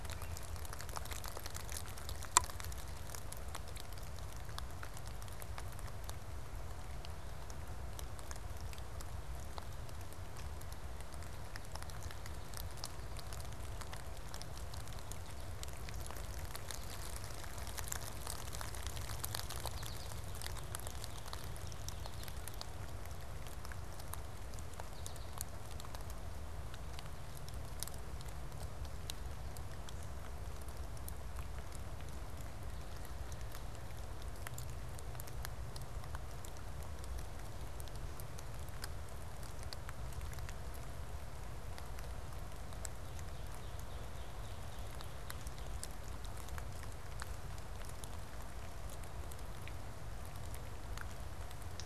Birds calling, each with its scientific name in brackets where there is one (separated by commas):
American Goldfinch (Spinus tristis), Northern Cardinal (Cardinalis cardinalis)